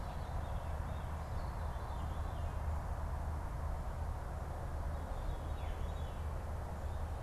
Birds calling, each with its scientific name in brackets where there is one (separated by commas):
Veery (Catharus fuscescens)